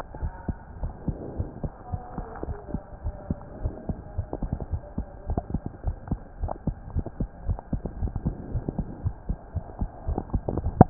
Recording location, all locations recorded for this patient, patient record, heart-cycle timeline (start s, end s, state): aortic valve (AV)
aortic valve (AV)+pulmonary valve (PV)+tricuspid valve (TV)+mitral valve (MV)
#Age: Child
#Sex: Female
#Height: 121.0 cm
#Weight: 24.8 kg
#Pregnancy status: False
#Murmur: Absent
#Murmur locations: nan
#Most audible location: nan
#Systolic murmur timing: nan
#Systolic murmur shape: nan
#Systolic murmur grading: nan
#Systolic murmur pitch: nan
#Systolic murmur quality: nan
#Diastolic murmur timing: nan
#Diastolic murmur shape: nan
#Diastolic murmur grading: nan
#Diastolic murmur pitch: nan
#Diastolic murmur quality: nan
#Outcome: Normal
#Campaign: 2015 screening campaign
0.00	0.20	unannotated
0.20	0.32	S1
0.32	0.46	systole
0.46	0.56	S2
0.56	0.80	diastole
0.80	0.92	S1
0.92	1.06	systole
1.06	1.16	S2
1.16	1.36	diastole
1.36	1.50	S1
1.50	1.62	systole
1.62	1.72	S2
1.72	1.92	diastole
1.92	2.00	S1
2.00	2.16	systole
2.16	2.26	S2
2.26	2.44	diastole
2.44	2.58	S1
2.58	2.70	systole
2.70	2.80	S2
2.80	3.02	diastole
3.02	3.16	S1
3.16	3.28	systole
3.28	3.38	S2
3.38	3.58	diastole
3.58	3.72	S1
3.72	3.88	systole
3.88	3.98	S2
3.98	4.16	diastole
4.16	4.26	S1
4.26	4.40	systole
4.40	4.50	S2
4.50	4.70	diastole
4.70	4.84	S1
4.84	4.98	systole
4.98	5.06	S2
5.06	5.26	diastole
5.26	5.42	S1
5.42	5.52	systole
5.52	5.62	S2
5.62	5.84	diastole
5.84	5.98	S1
5.98	6.10	systole
6.10	6.20	S2
6.20	6.40	diastole
6.40	6.54	S1
6.54	6.66	systole
6.66	6.76	S2
6.76	6.94	diastole
6.94	7.06	S1
7.06	7.20	systole
7.20	7.30	S2
7.30	7.46	diastole
7.46	7.58	S1
7.58	7.72	systole
7.72	7.82	S2
7.82	7.98	diastole
7.98	8.14	S1
8.14	8.24	systole
8.24	8.36	S2
8.36	8.52	diastole
8.52	8.64	S1
8.64	8.78	systole
8.78	8.88	S2
8.88	9.04	diastole
9.04	9.16	S1
9.16	9.28	systole
9.28	9.38	S2
9.38	9.56	diastole
9.56	9.66	S1
9.66	9.80	systole
9.80	9.90	S2
9.90	10.06	diastole
10.06	10.24	S1
10.24	10.30	systole
10.30	10.42	S2
10.42	10.62	diastole
10.62	10.74	S1
10.74	10.90	unannotated